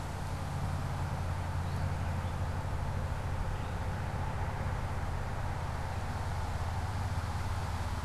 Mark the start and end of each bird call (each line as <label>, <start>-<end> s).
Gray Catbird (Dumetella carolinensis), 1.5-4.3 s